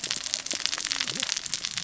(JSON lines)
{"label": "biophony, cascading saw", "recorder": "SoundTrap 600 or HydroMoth"}